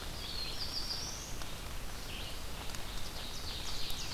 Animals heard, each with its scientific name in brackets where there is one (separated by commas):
Red-eyed Vireo (Vireo olivaceus), Black-throated Blue Warbler (Setophaga caerulescens), Ovenbird (Seiurus aurocapilla)